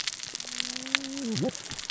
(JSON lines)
{"label": "biophony, cascading saw", "recorder": "SoundTrap 600 or HydroMoth"}